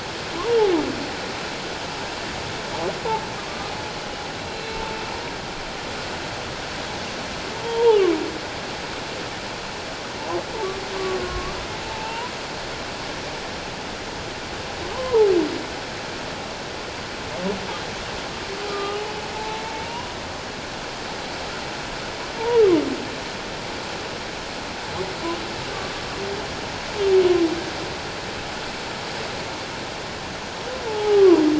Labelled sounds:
3.4	4.8	humpback whale, 1.0 to 4.1 kHz
7.6	8.0	humpback whale, 0.81 to 1.0 kHz
10.9	12.3	humpback whale, 0.84 to 2.8 kHz
14.9	15.3	humpback whale, 0.81 to 1.1 kHz
18.7	20.1	humpback whale, 0.81 to 4.0 kHz
30.8	31.4	humpback whale, 0.78 to 1.3 kHz

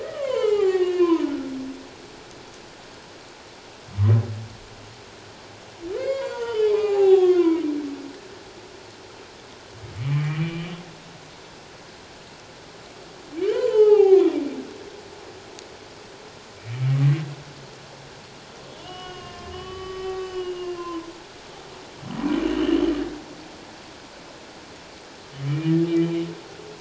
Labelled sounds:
0.0	1.5	humpback whale, 0.78 to 3.3 kHz
6.0	7.6	humpback whale, 0.78 to 5.0 kHz
10.0	10.8	humpback whale, 1.8 to 3.2 kHz
13.5	14.4	humpback whale, 0.78 to 3.5 kHz
18.8	21.1	humpback whale, 0.91 to 5.0 kHz
22.4	22.9	humpback whale, 2.7 to 3.2 kHz
25.4	26.3	humpback whale, 2.2 to 3.1 kHz

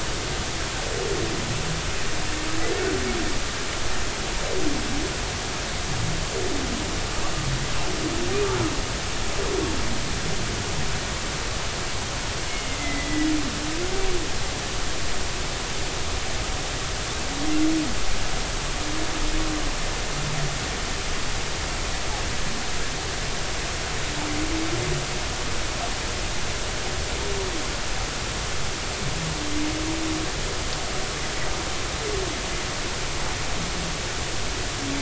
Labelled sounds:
12.5	13.3	humpback whale, 1.9 to 2.2 kHz

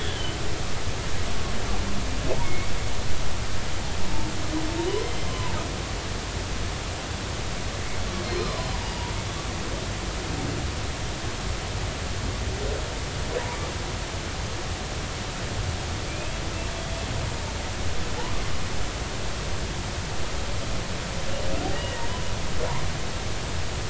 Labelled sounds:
0.1	0.4	humpback whale, 2.9 to 3.2 kHz
2.4	2.7	humpback whale, 2.0 to 2.3 kHz
5.0	5.5	humpback whale, 0.86 to 3.2 kHz
8.3	9.2	humpback whale, 0.83 to 4.3 kHz
16.1	16.3	humpback whale, 2.3 to 2.6 kHz
21.7	22.0	humpback whale, 2.8 to 2.9 kHz

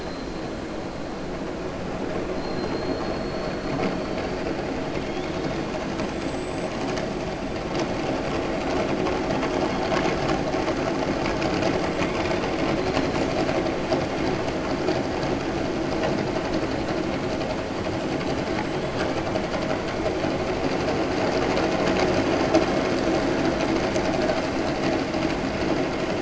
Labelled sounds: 4.9	5.6	killer whale, southern resident, 2.7 to 4.5 kHz

